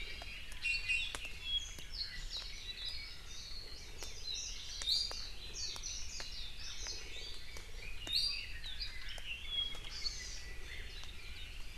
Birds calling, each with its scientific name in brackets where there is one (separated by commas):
Warbling White-eye (Zosterops japonicus), Red-billed Leiothrix (Leiothrix lutea), Iiwi (Drepanis coccinea), Hawaii Amakihi (Chlorodrepanis virens)